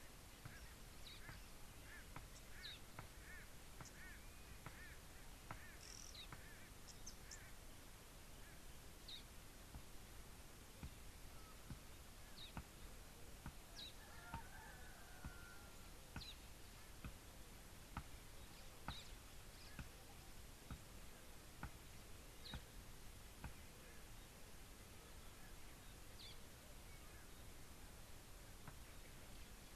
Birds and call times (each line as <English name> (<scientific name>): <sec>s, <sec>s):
Red-billed Oxpecker (Buphagus erythrorynchus): 3.9s, 6.0s
Parrot-billed Sparrow (Passer gongonensis): 9.1s, 19.0s